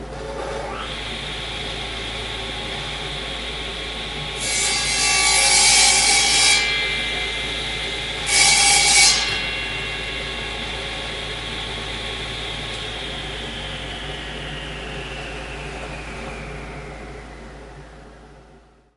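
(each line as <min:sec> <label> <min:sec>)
0:00.0 A quiet background noise of a cutting machine running. 0:19.0
0:00.0 Quiet background noise of a machine running. 0:19.0
0:04.4 A cutting machine is cutting an object indoors. 0:07.0
0:04.4 A cutting machine is cutting wood indoors. 0:07.0
0:08.3 A cutting machine is cutting an object indoors. 0:09.5
0:08.3 A cutting machine is cutting wood indoors. 0:09.5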